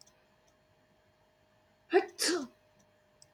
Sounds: Sneeze